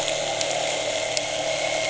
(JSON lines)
{"label": "anthrophony, boat engine", "recorder": "HydroMoth"}